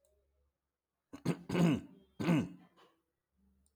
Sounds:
Throat clearing